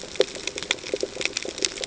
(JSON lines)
{"label": "ambient", "recorder": "HydroMoth"}